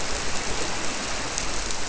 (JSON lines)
{"label": "biophony", "recorder": "SoundTrap 300"}